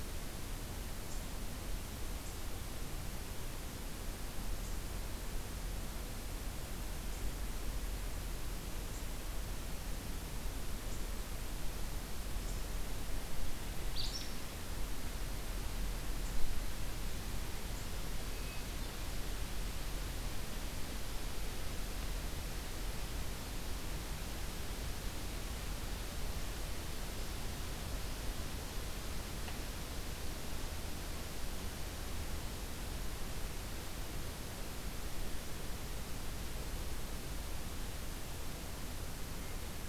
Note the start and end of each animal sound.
13.9s-14.3s: Acadian Flycatcher (Empidonax virescens)
18.2s-18.9s: Hermit Thrush (Catharus guttatus)

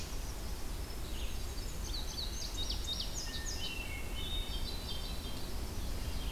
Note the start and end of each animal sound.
0.0s-1.8s: Hermit Thrush (Catharus guttatus)
0.0s-4.9s: Red-eyed Vireo (Vireo olivaceus)
1.6s-3.9s: Indigo Bunting (Passerina cyanea)
3.2s-6.3s: Hermit Thrush (Catharus guttatus)

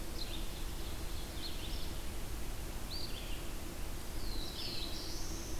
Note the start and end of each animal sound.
0.0s-1.9s: Ovenbird (Seiurus aurocapilla)
0.0s-5.6s: Red-eyed Vireo (Vireo olivaceus)
3.9s-5.6s: Black-throated Blue Warbler (Setophaga caerulescens)

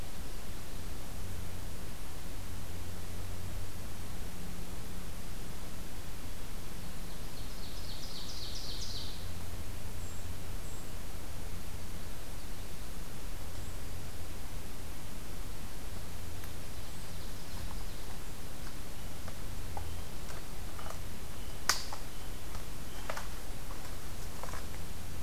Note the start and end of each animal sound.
6.9s-9.2s: Ovenbird (Seiurus aurocapilla)
16.6s-18.2s: Ovenbird (Seiurus aurocapilla)
18.8s-23.1s: American Robin (Turdus migratorius)

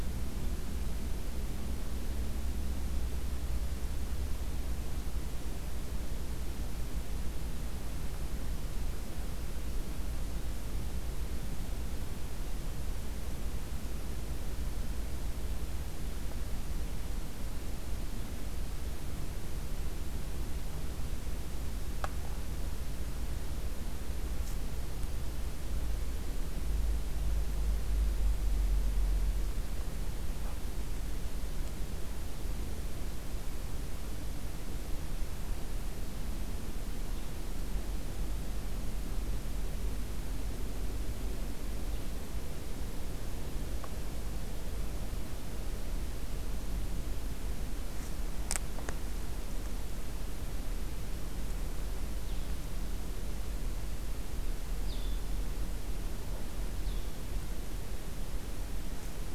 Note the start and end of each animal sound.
52.1s-59.3s: Blue-headed Vireo (Vireo solitarius)

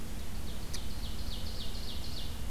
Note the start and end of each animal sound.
0.1s-2.5s: Ovenbird (Seiurus aurocapilla)

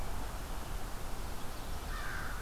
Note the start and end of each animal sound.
1.5s-2.4s: American Crow (Corvus brachyrhynchos)

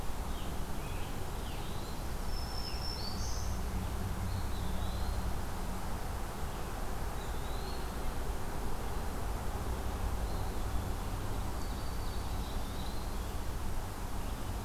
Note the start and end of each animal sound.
0.0s-2.9s: Scarlet Tanager (Piranga olivacea)
2.1s-3.7s: Black-throated Green Warbler (Setophaga virens)
4.0s-5.3s: Eastern Wood-Pewee (Contopus virens)
6.9s-7.9s: Eastern Wood-Pewee (Contopus virens)
10.2s-11.1s: Eastern Wood-Pewee (Contopus virens)
11.5s-12.8s: Black-throated Green Warbler (Setophaga virens)
12.1s-13.3s: Eastern Wood-Pewee (Contopus virens)

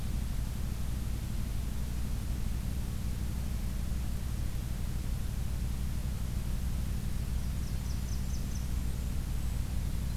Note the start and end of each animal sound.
7.2s-9.1s: Blackburnian Warbler (Setophaga fusca)

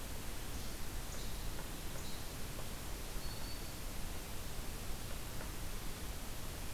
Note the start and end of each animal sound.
0.4s-2.5s: Least Flycatcher (Empidonax minimus)
3.0s-3.7s: Black-throated Green Warbler (Setophaga virens)

